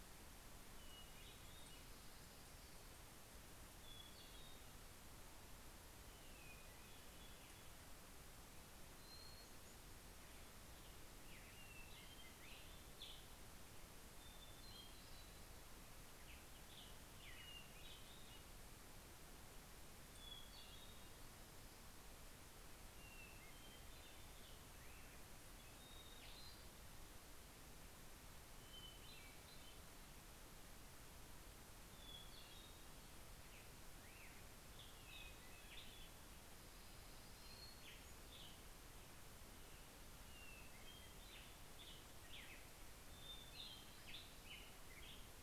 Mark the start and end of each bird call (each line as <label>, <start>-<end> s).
Hermit Thrush (Catharus guttatus), 0.3-1.8 s
Hermit Thrush (Catharus guttatus), 3.4-4.8 s
Hermit Thrush (Catharus guttatus), 5.9-7.9 s
Hermit Thrush (Catharus guttatus), 8.4-10.1 s
Black-headed Grosbeak (Pheucticus melanocephalus), 10.9-13.4 s
Hermit Thrush (Catharus guttatus), 13.8-15.8 s
Black-headed Grosbeak (Pheucticus melanocephalus), 15.6-18.9 s
Hermit Thrush (Catharus guttatus), 19.6-21.6 s
Hermit Thrush (Catharus guttatus), 22.4-24.5 s
Hermit Thrush (Catharus guttatus), 25.4-27.0 s
Hermit Thrush (Catharus guttatus), 28.2-30.3 s
Hermit Thrush (Catharus guttatus), 31.7-33.0 s
Hermit Thrush (Catharus guttatus), 34.8-36.3 s
Orange-crowned Warbler (Leiothlypis celata), 35.9-38.1 s
Black-headed Grosbeak (Pheucticus melanocephalus), 36.9-45.3 s
Hermit Thrush (Catharus guttatus), 37.1-39.3 s
Hermit Thrush (Catharus guttatus), 42.7-44.8 s